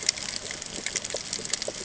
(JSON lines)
{"label": "ambient", "recorder": "HydroMoth"}